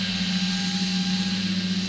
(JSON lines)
{"label": "anthrophony, boat engine", "recorder": "SoundTrap 500"}